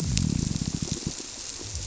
{"label": "biophony", "recorder": "SoundTrap 300"}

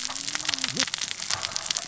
{"label": "biophony, cascading saw", "recorder": "SoundTrap 600 or HydroMoth"}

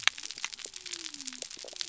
{"label": "biophony", "recorder": "SoundTrap 300"}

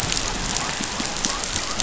{"label": "biophony", "recorder": "SoundTrap 500"}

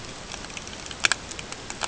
{"label": "ambient", "recorder": "HydroMoth"}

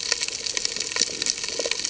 {"label": "ambient", "recorder": "HydroMoth"}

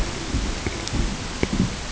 {"label": "ambient", "recorder": "HydroMoth"}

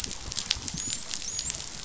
{"label": "biophony, dolphin", "recorder": "SoundTrap 500"}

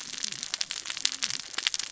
{"label": "biophony, cascading saw", "recorder": "SoundTrap 600 or HydroMoth"}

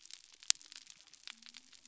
{"label": "biophony", "recorder": "SoundTrap 300"}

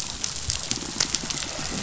{"label": "biophony", "recorder": "SoundTrap 500"}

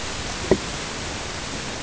{"label": "ambient", "recorder": "HydroMoth"}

